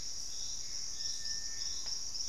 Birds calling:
Purple-throated Fruitcrow (Querula purpurata), Screaming Piha (Lipaugus vociferans), Gray Antbird (Cercomacra cinerascens)

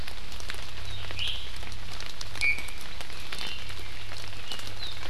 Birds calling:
Iiwi (Drepanis coccinea)

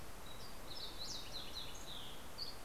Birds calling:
Dusky Flycatcher (Empidonax oberholseri), Fox Sparrow (Passerella iliaca)

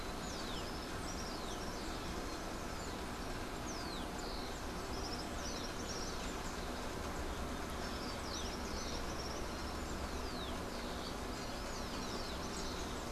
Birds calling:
Common Tody-Flycatcher (Todirostrum cinereum)

